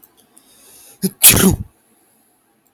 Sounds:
Sneeze